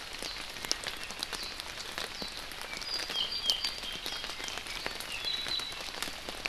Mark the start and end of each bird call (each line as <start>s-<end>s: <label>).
2.6s-4.7s: Apapane (Himatione sanguinea)
5.0s-5.8s: Apapane (Himatione sanguinea)